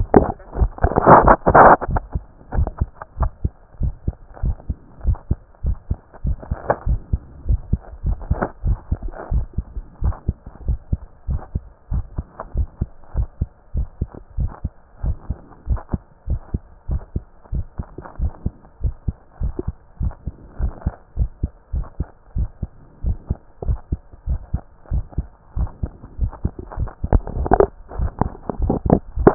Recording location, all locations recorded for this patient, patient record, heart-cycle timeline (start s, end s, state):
tricuspid valve (TV)
aortic valve (AV)+pulmonary valve (PV)+tricuspid valve (TV)+mitral valve (MV)
#Age: Child
#Sex: Male
#Height: 146.0 cm
#Weight: 34.8 kg
#Pregnancy status: False
#Murmur: Absent
#Murmur locations: nan
#Most audible location: nan
#Systolic murmur timing: nan
#Systolic murmur shape: nan
#Systolic murmur grading: nan
#Systolic murmur pitch: nan
#Systolic murmur quality: nan
#Diastolic murmur timing: nan
#Diastolic murmur shape: nan
#Diastolic murmur grading: nan
#Diastolic murmur pitch: nan
#Diastolic murmur quality: nan
#Outcome: Normal
#Campaign: 2014 screening campaign
0.00	3.73	unannotated
3.73	3.80	diastole
3.80	3.94	S1
3.94	4.06	systole
4.06	4.14	S2
4.14	4.42	diastole
4.42	4.56	S1
4.56	4.68	systole
4.68	4.76	S2
4.76	5.04	diastole
5.04	5.18	S1
5.18	5.30	systole
5.30	5.38	S2
5.38	5.64	diastole
5.64	5.76	S1
5.76	5.90	systole
5.90	5.98	S2
5.98	6.24	diastole
6.24	6.36	S1
6.36	6.50	systole
6.50	6.58	S2
6.58	6.86	diastole
6.86	7.00	S1
7.00	7.12	systole
7.12	7.20	S2
7.20	7.48	diastole
7.48	7.60	S1
7.60	7.72	systole
7.72	7.80	S2
7.80	8.04	diastole
8.04	8.18	S1
8.18	8.30	systole
8.30	8.38	S2
8.38	8.64	diastole
8.64	8.78	S1
8.78	8.90	systole
8.90	8.98	S2
8.98	9.32	diastole
9.32	9.46	S1
9.46	9.58	systole
9.58	9.66	S2
9.66	10.02	diastole
10.02	10.14	S1
10.14	10.26	systole
10.26	10.36	S2
10.36	10.66	diastole
10.66	10.78	S1
10.78	10.90	systole
10.90	11.00	S2
11.00	11.28	diastole
11.28	11.40	S1
11.40	11.54	systole
11.54	11.62	S2
11.62	11.92	diastole
11.92	12.04	S1
12.04	12.16	systole
12.16	12.26	S2
12.26	12.56	diastole
12.56	12.68	S1
12.68	12.80	systole
12.80	12.88	S2
12.88	13.16	diastole
13.16	13.28	S1
13.28	13.40	systole
13.40	13.48	S2
13.48	13.74	diastole
13.74	13.86	S1
13.86	14.00	systole
14.00	14.08	S2
14.08	14.38	diastole
14.38	14.50	S1
14.50	14.64	systole
14.64	14.72	S2
14.72	15.04	diastole
15.04	15.16	S1
15.16	15.28	systole
15.28	15.38	S2
15.38	15.68	diastole
15.68	15.80	S1
15.80	15.92	systole
15.92	16.00	S2
16.00	16.28	diastole
16.28	16.40	S1
16.40	16.52	systole
16.52	16.62	S2
16.62	16.90	diastole
16.90	17.02	S1
17.02	17.14	systole
17.14	17.24	S2
17.24	17.52	diastole
17.52	17.64	S1
17.64	17.78	systole
17.78	17.88	S2
17.88	18.20	diastole
18.20	18.32	S1
18.32	18.44	systole
18.44	18.54	S2
18.54	18.82	diastole
18.82	18.94	S1
18.94	19.06	systole
19.06	19.16	S2
19.16	19.42	diastole
19.42	19.54	S1
19.54	19.66	systole
19.66	19.76	S2
19.76	20.00	diastole
20.00	20.12	S1
20.12	20.26	systole
20.26	20.34	S2
20.34	20.60	diastole
20.60	20.72	S1
20.72	20.84	systole
20.84	20.94	S2
20.94	21.18	diastole
21.18	21.30	S1
21.30	21.42	systole
21.42	21.50	S2
21.50	21.74	diastole
21.74	21.86	S1
21.86	21.98	systole
21.98	22.08	S2
22.08	22.36	diastole
22.36	22.48	S1
22.48	22.62	systole
22.62	22.70	S2
22.70	23.04	diastole
23.04	23.16	S1
23.16	23.28	systole
23.28	23.38	S2
23.38	23.66	diastole
23.66	23.78	S1
23.78	23.90	systole
23.90	24.00	S2
24.00	24.28	diastole
24.28	24.40	S1
24.40	24.52	systole
24.52	24.62	S2
24.62	24.92	diastole
24.92	25.04	S1
25.04	25.16	systole
25.16	25.26	S2
25.26	25.58	diastole
25.58	25.70	S1
25.70	25.82	systole
25.82	25.92	S2
25.92	26.20	diastole
26.20	26.32	S1
26.32	26.44	systole
26.44	26.52	S2
26.52	26.78	diastole
26.78	29.34	unannotated